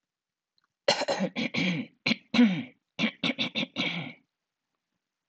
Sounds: Throat clearing